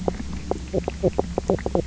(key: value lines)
label: biophony, knock croak
recorder: SoundTrap 300